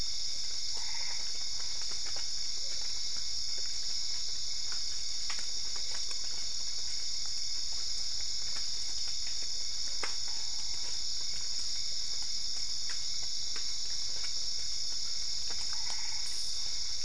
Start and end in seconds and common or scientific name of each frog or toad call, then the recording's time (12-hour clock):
0.5	1.7	Boana albopunctata
15.4	16.9	Boana albopunctata
10:30pm